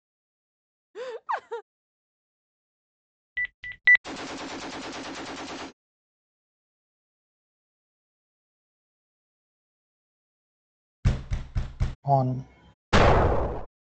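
First, at the start, laughter is heard. Then, about 3 seconds in, you can hear a telephone. Afterwards, at 4 seconds, there is gunfire. Later, about 11 seconds in, there is the sound of knocking. Following that, at 12 seconds, a voice says "On". Finally, about 13 seconds in, an explosion is heard.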